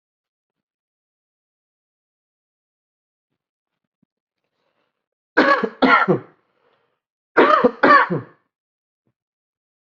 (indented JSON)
{
  "expert_labels": [
    {
      "quality": "good",
      "cough_type": "wet",
      "dyspnea": false,
      "wheezing": false,
      "stridor": false,
      "choking": false,
      "congestion": false,
      "nothing": true,
      "diagnosis": "upper respiratory tract infection",
      "severity": "mild"
    }
  ],
  "age": 34,
  "gender": "male",
  "respiratory_condition": false,
  "fever_muscle_pain": false,
  "status": "healthy"
}